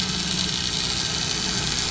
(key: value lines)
label: anthrophony, boat engine
recorder: SoundTrap 500